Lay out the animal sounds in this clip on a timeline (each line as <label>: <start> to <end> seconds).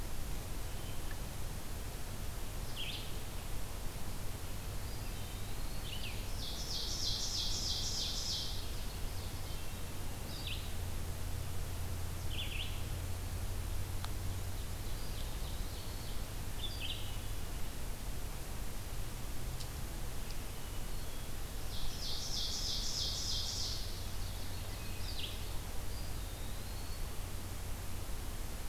Red-eyed Vireo (Vireo olivaceus): 0.0 to 25.4 seconds
Eastern Wood-Pewee (Contopus virens): 4.8 to 6.3 seconds
Ovenbird (Seiurus aurocapilla): 6.0 to 8.5 seconds
Hermit Thrush (Catharus guttatus): 9.2 to 10.2 seconds
Eastern Wood-Pewee (Contopus virens): 14.9 to 16.2 seconds
Ovenbird (Seiurus aurocapilla): 21.5 to 25.6 seconds
Eastern Wood-Pewee (Contopus virens): 25.8 to 27.1 seconds